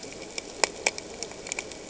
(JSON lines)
{"label": "ambient", "recorder": "HydroMoth"}